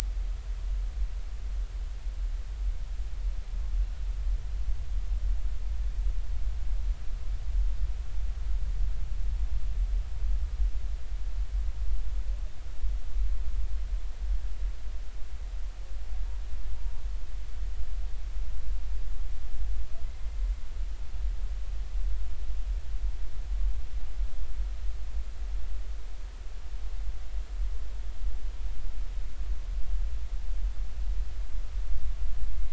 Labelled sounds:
16.8	17.0	humpback whale, 0.90 to 0.96 kHz

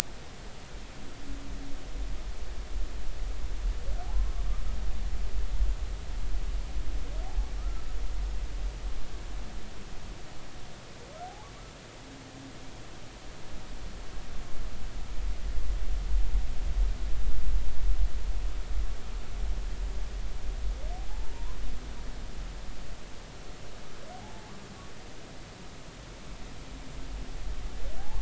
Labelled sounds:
7.6	7.8	humpback whale, 1.2 to 1.4 kHz
21.1	21.6	humpback whale, 0.80 to 1.1 kHz
24.1	24.5	humpback whale, 0.80 to 0.90 kHz
28.0	28.2	humpback whale, 0.80 to 0.96 kHz

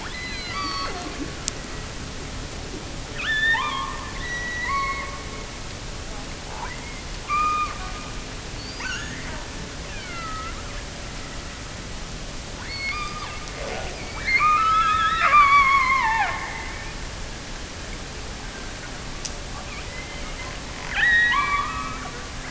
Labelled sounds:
0.0	1.3	killer whale, offshore, 0.18 to 6.0 kHz
3.1	5.7	killer whale, offshore, 0.75 to 6.0 kHz
6.4	7.8	killer whale, offshore, 0.73 to 5.3 kHz
8.5	10.6	killer whale, offshore, 0.64 to 6.8 kHz
12.5	13.6	killer whale, offshore, 0.86 to 5.1 kHz
14.1	16.6	killer whale, offshore, 0.59 to 5.5 kHz
20.8	22.2	killer whale, offshore, 0.64 to 5.1 kHz

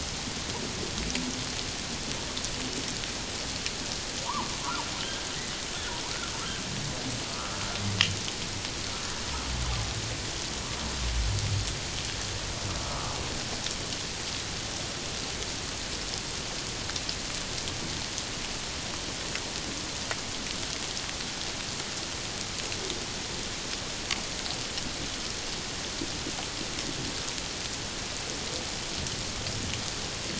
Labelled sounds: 4.3	4.5	humpback whale, 0.81 to 1.2 kHz
7.3	7.6	humpback whale, 1.1 to 1.4 kHz
12.8	13.1	humpback whale, 1.1 to 1.4 kHz

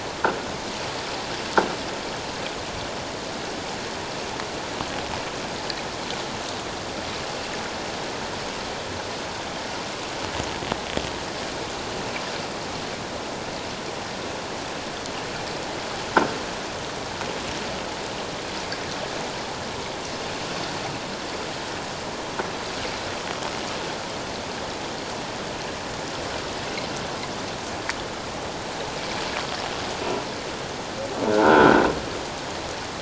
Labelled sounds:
31.3	31.8	croaking sound likely from a nearby submerged object, 1.3 to 1.6 kHz

